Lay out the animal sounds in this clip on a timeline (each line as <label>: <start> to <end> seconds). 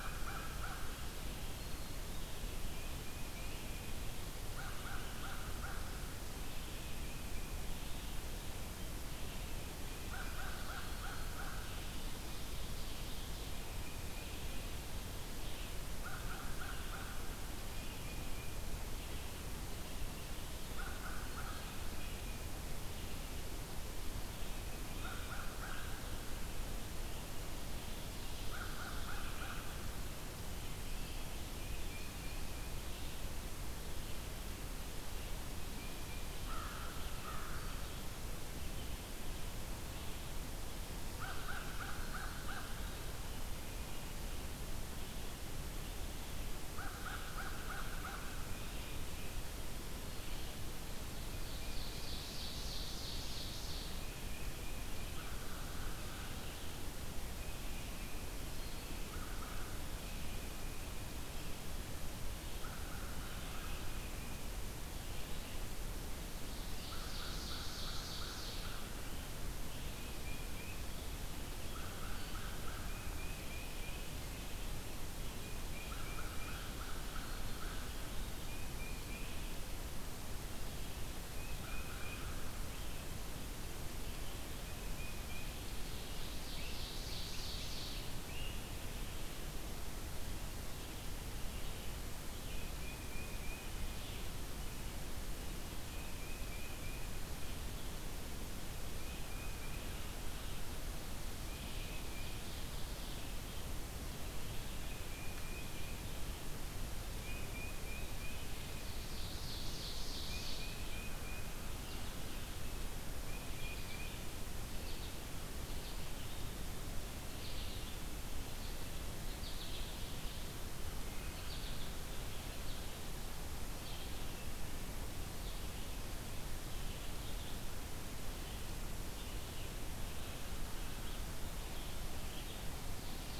American Crow (Corvus brachyrhynchos): 0.0 to 0.9 seconds
Red-eyed Vireo (Vireo olivaceus): 0.0 to 62.2 seconds
Black-throated Green Warbler (Setophaga virens): 1.5 to 2.1 seconds
Tufted Titmouse (Baeolophus bicolor): 2.6 to 3.9 seconds
American Crow (Corvus brachyrhynchos): 4.5 to 6.0 seconds
Tufted Titmouse (Baeolophus bicolor): 6.6 to 7.8 seconds
American Crow (Corvus brachyrhynchos): 10.0 to 11.7 seconds
Ovenbird (Seiurus aurocapilla): 12.0 to 13.8 seconds
Tufted Titmouse (Baeolophus bicolor): 13.5 to 14.7 seconds
American Crow (Corvus brachyrhynchos): 15.9 to 17.3 seconds
Tufted Titmouse (Baeolophus bicolor): 18.0 to 18.9 seconds
American Crow (Corvus brachyrhynchos): 20.6 to 21.7 seconds
Tufted Titmouse (Baeolophus bicolor): 21.4 to 22.5 seconds
Tufted Titmouse (Baeolophus bicolor): 24.4 to 25.5 seconds
American Crow (Corvus brachyrhynchos): 24.9 to 26.0 seconds
American Crow (Corvus brachyrhynchos): 28.4 to 30.0 seconds
Tufted Titmouse (Baeolophus bicolor): 31.4 to 32.6 seconds
Tufted Titmouse (Baeolophus bicolor): 35.6 to 36.4 seconds
American Crow (Corvus brachyrhynchos): 36.3 to 37.7 seconds
American Crow (Corvus brachyrhynchos): 41.0 to 42.7 seconds
American Crow (Corvus brachyrhynchos): 46.7 to 48.4 seconds
Tufted Titmouse (Baeolophus bicolor): 48.2 to 49.5 seconds
Tufted Titmouse (Baeolophus bicolor): 51.1 to 52.5 seconds
Ovenbird (Seiurus aurocapilla): 51.3 to 54.0 seconds
Tufted Titmouse (Baeolophus bicolor): 54.0 to 54.9 seconds
American Crow (Corvus brachyrhynchos): 55.0 to 56.5 seconds
Tufted Titmouse (Baeolophus bicolor): 57.3 to 58.4 seconds
American Crow (Corvus brachyrhynchos): 58.8 to 59.8 seconds
Tufted Titmouse (Baeolophus bicolor): 60.0 to 61.5 seconds
American Crow (Corvus brachyrhynchos): 62.4 to 63.8 seconds
Red-eyed Vireo (Vireo olivaceus): 63.2 to 120.7 seconds
Tufted Titmouse (Baeolophus bicolor): 63.5 to 64.5 seconds
Ovenbird (Seiurus aurocapilla): 66.4 to 68.8 seconds
American Crow (Corvus brachyrhynchos): 66.8 to 68.9 seconds
Tufted Titmouse (Baeolophus bicolor): 69.8 to 70.9 seconds
American Crow (Corvus brachyrhynchos): 71.6 to 72.8 seconds
Tufted Titmouse (Baeolophus bicolor): 72.8 to 74.2 seconds
American Crow (Corvus brachyrhynchos): 75.8 to 77.9 seconds
Tufted Titmouse (Baeolophus bicolor): 78.3 to 79.4 seconds
Tufted Titmouse (Baeolophus bicolor): 81.3 to 82.3 seconds
American Crow (Corvus brachyrhynchos): 81.5 to 82.5 seconds
Tufted Titmouse (Baeolophus bicolor): 84.5 to 85.6 seconds
Ovenbird (Seiurus aurocapilla): 85.4 to 88.2 seconds
Great Crested Flycatcher (Myiarchus crinitus): 86.4 to 89.0 seconds
Tufted Titmouse (Baeolophus bicolor): 92.6 to 93.8 seconds
Tufted Titmouse (Baeolophus bicolor): 95.8 to 97.3 seconds
Tufted Titmouse (Baeolophus bicolor): 98.9 to 100.1 seconds
Tufted Titmouse (Baeolophus bicolor): 101.4 to 102.5 seconds
Ovenbird (Seiurus aurocapilla): 101.5 to 103.4 seconds
Tufted Titmouse (Baeolophus bicolor): 105.0 to 106.1 seconds
Tufted Titmouse (Baeolophus bicolor): 107.1 to 108.4 seconds
Ovenbird (Seiurus aurocapilla): 108.6 to 110.8 seconds
Tufted Titmouse (Baeolophus bicolor): 110.2 to 111.6 seconds
Tufted Titmouse (Baeolophus bicolor): 113.1 to 114.2 seconds
American Goldfinch (Spinus tristis): 114.7 to 119.9 seconds
Red-eyed Vireo (Vireo olivaceus): 121.0 to 133.4 seconds
American Goldfinch (Spinus tristis): 121.3 to 125.6 seconds